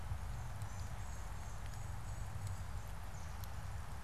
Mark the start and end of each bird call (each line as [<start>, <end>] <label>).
[0.30, 2.80] unidentified bird